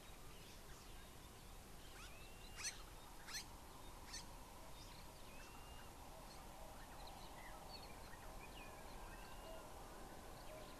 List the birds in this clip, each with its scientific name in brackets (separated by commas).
Blue-naped Mousebird (Urocolius macrourus), White-browed Sparrow-Weaver (Plocepasser mahali)